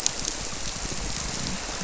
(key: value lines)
label: biophony
recorder: SoundTrap 300